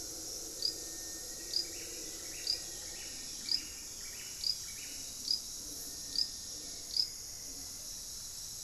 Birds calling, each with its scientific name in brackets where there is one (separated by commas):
Buff-breasted Wren (Cantorchilus leucotis), Plumbeous Pigeon (Patagioenas plumbea), Rufous-fronted Antthrush (Formicarius rufifrons)